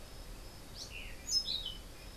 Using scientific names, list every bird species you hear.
Catharus aurantiirostris